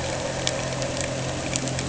{"label": "anthrophony, boat engine", "recorder": "HydroMoth"}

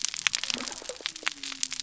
{"label": "biophony", "recorder": "SoundTrap 300"}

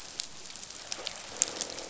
{"label": "biophony, croak", "recorder": "SoundTrap 500"}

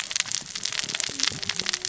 {"label": "biophony, cascading saw", "recorder": "SoundTrap 600 or HydroMoth"}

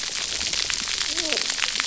{"label": "biophony, cascading saw", "recorder": "SoundTrap 300"}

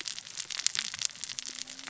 {"label": "biophony, cascading saw", "recorder": "SoundTrap 600 or HydroMoth"}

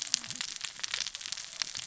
{"label": "biophony, cascading saw", "recorder": "SoundTrap 600 or HydroMoth"}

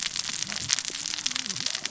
{"label": "biophony, cascading saw", "recorder": "SoundTrap 600 or HydroMoth"}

